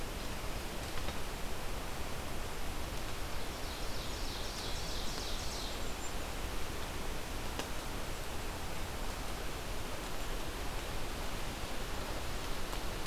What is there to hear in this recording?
Ovenbird, Golden-crowned Kinglet